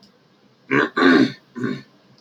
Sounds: Throat clearing